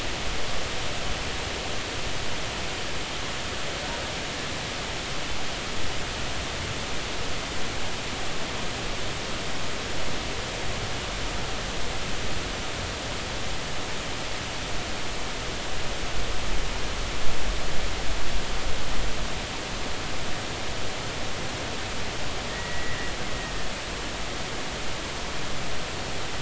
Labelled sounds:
22.5	23.1	killer whale, Bigg's (transient), 1.8 to 2.0 kHz

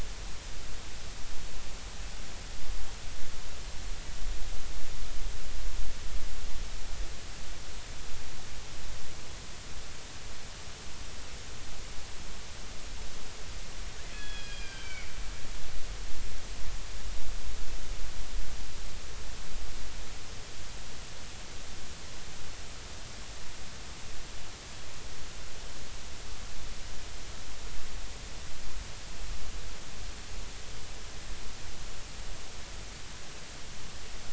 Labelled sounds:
14.1	15.1	killer whale, Bigg's (transient), 1.4 to 3.4 kHz
14.1	15.1	killer whale, 1.4 to 3.4 kHz

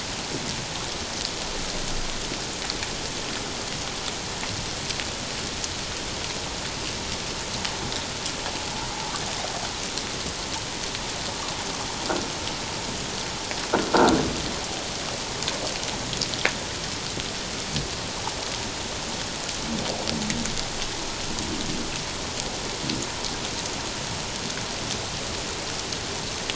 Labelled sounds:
13.9	14.2	croaking sound likely from a nearby submerged object, 1.3 to 1.6 kHz

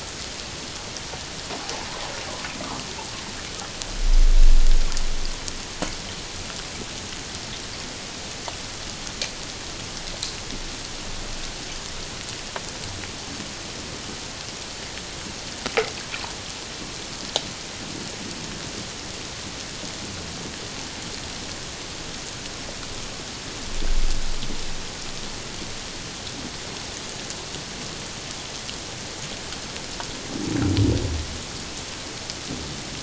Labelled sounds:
1.6	1.9	water noise, 0.78 to 1.0 kHz

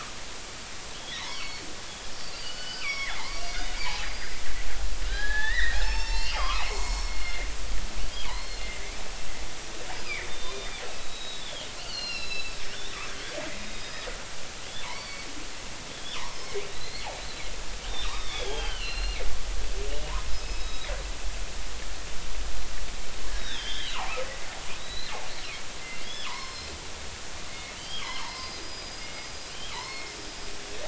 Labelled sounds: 1.0	1.6	killer whale, northern resident, G clan, 1.8 to 4.6 kHz
2.2	3.8	killer whale, northern resident, G clan, 1.1 to 6.6 kHz
4.1	9.0	killer whale, northern resident, G clan, 0.80 to 5.6 kHz
9.9	12.6	killer whale, northern resident, G clan, 1.8 to 5.8 kHz
13.7	14.1	killer whale, northern resident, G clan, 3.7 to 5.2 kHz
14.8	15.3	killer whale, northern resident, G clan, 0.83 to 4.6 kHz
16.5	17.1	killer whale, northern resident, G clan, 2.1 to 4.5 kHz
18.0	19.2	killer whale, northern resident, G clan, 0.80 to 4.4 kHz
20.3	20.9	killer whale, northern resident, G clan, 3.7 to 5.2 kHz
23.4	24.2	killer whale, northern resident, G clan, 2.3 to 4.0 kHz
24.8	25.1	killer whale, northern resident, G clan, 1.9 to 4.2 kHz
26.0	26.7	killer whale, northern resident, G clan, 0.86 to 5.5 kHz
27.8	30.2	killer whale, northern resident, G clan, 0.83 to 5.4 kHz

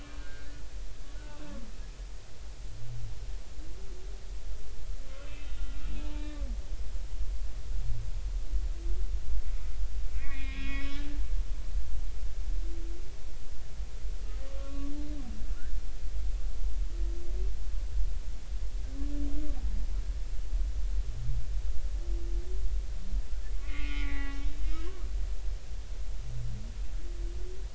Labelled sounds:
0.2	0.5	humpback whale, 1.4 to 1.7 kHz
5.2	6.3	humpback whale, 0.86 to 2.8 kHz
10.1	11.1	humpback whale, 1.1 to 3.6 kHz
14.5	14.9	humpback whale, 1.1 to 1.2 kHz
23.6	25.0	humpback whale, 0.80 to 3.7 kHz

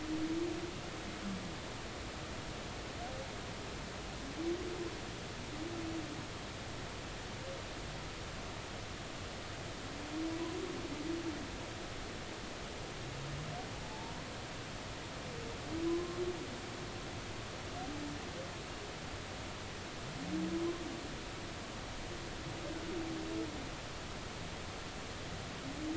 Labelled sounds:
13.8	14.2	humpback whale, 0.83 to 0.96 kHz
15.9	16.2	humpback whale, 0.96 to 1.1 kHz

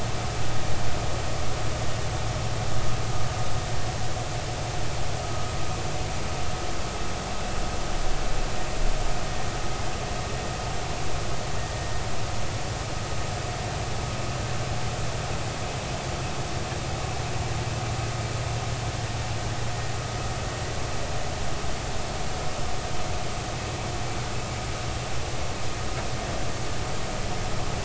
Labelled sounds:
5.2	5.5	vessel noise, 1.2 to 1.3 kHz

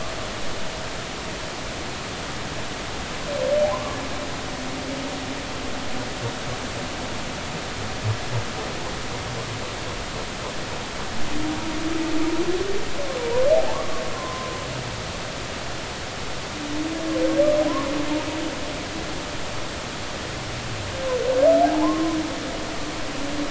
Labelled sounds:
3.7	4.0	humpback whale, 0.93 to 1.2 kHz
13.5	14.6	humpback whale, 0.80 to 1.2 kHz
17.7	17.9	humpback whale, 0.93 to 1.2 kHz
21.6	22.2	humpback whale, 0.80 to 1.1 kHz

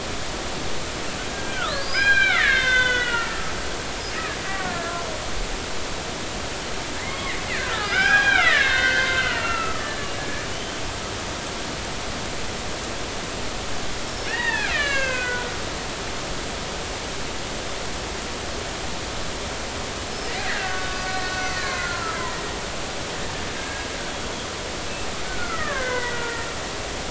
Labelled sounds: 1.3	3.5	killer whale, Bigg's (transient), 0.96 to 6.2 kHz
4.5	4.7	killer whale, Bigg's (transient), 1.1 to 2.0 kHz
7.0	10.8	killer whale, Bigg's (transient), 0.80 to 5.1 kHz
14.1	15.5	killer whale, Bigg's (transient), 0.83 to 5.7 kHz
20.4	22.4	killer whale, Bigg's (transient), 0.99 to 4.9 kHz
23.6	23.9	killer whale, Bigg's (transient), 1.6 to 1.7 kHz
25.2	26.2	killer whale, Bigg's (transient), 0.99 to 2.2 kHz

